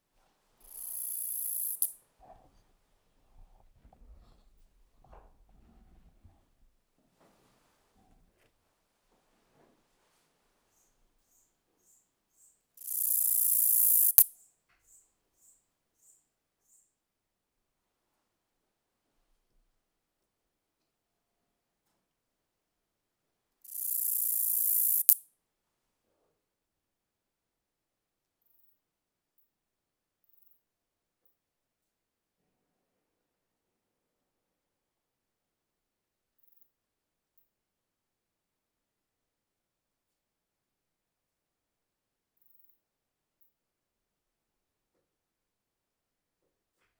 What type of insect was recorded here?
orthopteran